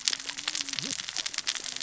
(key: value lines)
label: biophony, cascading saw
recorder: SoundTrap 600 or HydroMoth